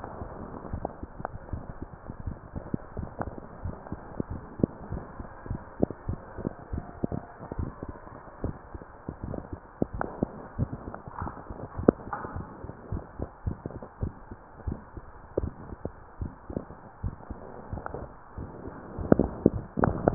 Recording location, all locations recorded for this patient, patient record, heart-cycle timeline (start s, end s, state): mitral valve (MV)
aortic valve (AV)+pulmonary valve (PV)+tricuspid valve (TV)+mitral valve (MV)
#Age: Child
#Sex: Female
#Height: 140.0 cm
#Weight: 41.8 kg
#Pregnancy status: False
#Murmur: Absent
#Murmur locations: nan
#Most audible location: nan
#Systolic murmur timing: nan
#Systolic murmur shape: nan
#Systolic murmur grading: nan
#Systolic murmur pitch: nan
#Systolic murmur quality: nan
#Diastolic murmur timing: nan
#Diastolic murmur shape: nan
#Diastolic murmur grading: nan
#Diastolic murmur pitch: nan
#Diastolic murmur quality: nan
#Outcome: Abnormal
#Campaign: 2015 screening campaign
0.00	2.76	unannotated
2.76	2.96	diastole
2.96	3.08	S1
3.08	3.23	systole
3.23	3.34	S2
3.34	3.62	diastole
3.62	3.76	S1
3.76	3.90	systole
3.90	4.00	S2
4.00	4.28	diastole
4.28	4.42	S1
4.42	4.56	systole
4.56	4.68	S2
4.68	4.90	diastole
4.90	5.04	S1
5.04	5.18	systole
5.18	5.26	S2
5.26	5.48	diastole
5.48	5.62	S1
5.62	5.78	systole
5.78	5.88	S2
5.88	6.08	diastole
6.08	6.20	S1
6.20	6.36	systole
6.36	6.44	S2
6.44	6.70	diastole
6.70	6.88	S1
6.88	7.02	systole
7.02	7.24	S2
7.24	7.56	diastole
7.56	7.74	S1
7.74	7.86	systole
7.86	7.96	S2
7.96	8.40	diastole
8.40	8.56	S1
8.56	8.70	systole
8.70	8.82	S2
8.82	9.22	diastole
9.22	9.38	S1
9.38	9.50	systole
9.50	9.62	S2
9.62	9.92	diastole
9.92	10.08	S1
10.08	10.19	systole
10.19	10.32	S2
10.32	10.56	diastole
10.56	10.70	S1
10.70	10.85	systole
10.85	10.96	S2
10.96	11.20	diastole
11.20	11.34	S1
11.34	11.48	systole
11.48	11.58	S2
11.58	11.76	diastole
11.76	11.90	S1
11.90	12.05	systole
12.05	12.14	S2
12.14	12.34	diastole
12.34	20.14	unannotated